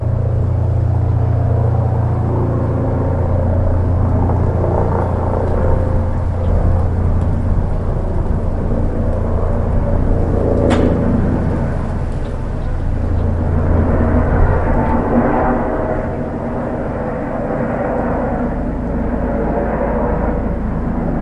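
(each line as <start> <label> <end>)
0.0 A helicopter flies overhead repeatedly, getting closer each time. 21.2
10.7 A loud clacking sound. 10.9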